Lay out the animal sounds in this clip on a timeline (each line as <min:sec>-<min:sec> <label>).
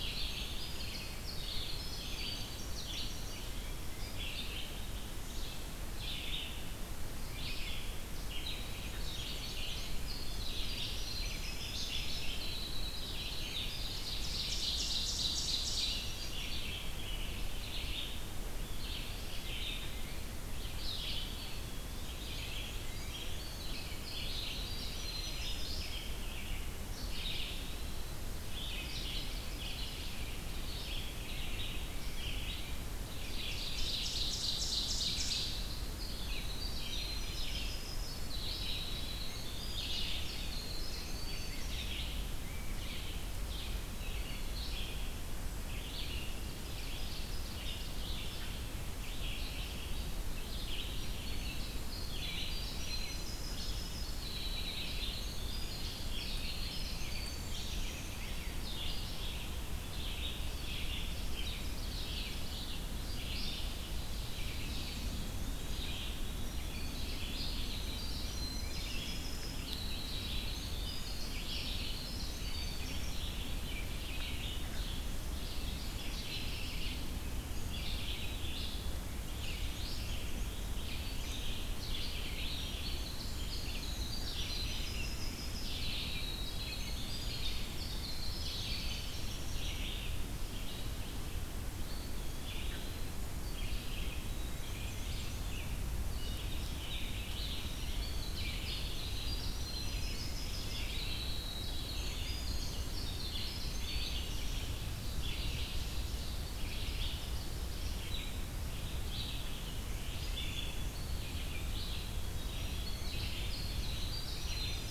0:00.0-0:04.0 Winter Wren (Troglodytes hiemalis)
0:00.0-0:04.8 Red-eyed Vireo (Vireo olivaceus)
0:05.0-1:54.9 Red-eyed Vireo (Vireo olivaceus)
0:08.3-0:10.1 Black-and-white Warbler (Mniotilta varia)
0:08.3-0:13.9 Winter Wren (Troglodytes hiemalis)
0:13.1-0:16.5 Ovenbird (Seiurus aurocapilla)
0:15.7-0:18.2 Rose-breasted Grosbeak (Pheucticus ludovicianus)
0:21.4-0:26.7 Winter Wren (Troglodytes hiemalis)
0:21.8-0:23.5 Black-and-white Warbler (Mniotilta varia)
0:26.9-0:28.2 Eastern Wood-Pewee (Contopus virens)
0:31.9-0:32.9 Tufted Titmouse (Baeolophus bicolor)
0:32.9-0:36.2 Ovenbird (Seiurus aurocapilla)
0:35.9-0:42.3 Winter Wren (Troglodytes hiemalis)
0:43.8-0:44.8 Eastern Wood-Pewee (Contopus virens)
0:46.0-0:48.2 Ovenbird (Seiurus aurocapilla)
0:50.9-0:58.7 Winter Wren (Troglodytes hiemalis)
0:56.3-0:58.8 Rose-breasted Grosbeak (Pheucticus ludovicianus)
1:04.3-1:06.0 Black-and-white Warbler (Mniotilta varia)
1:04.7-1:05.9 Eastern Wood-Pewee (Contopus virens)
1:07.9-1:13.5 Winter Wren (Troglodytes hiemalis)
1:19.2-1:20.8 Black-and-white Warbler (Mniotilta varia)
1:22.3-1:30.0 Winter Wren (Troglodytes hiemalis)
1:31.7-1:33.1 Eastern Wood-Pewee (Contopus virens)
1:34.1-1:35.8 Black-and-white Warbler (Mniotilta varia)
1:37.2-1:44.7 Winter Wren (Troglodytes hiemalis)
1:45.0-1:46.6 Ovenbird (Seiurus aurocapilla)
1:51.9-1:54.9 Winter Wren (Troglodytes hiemalis)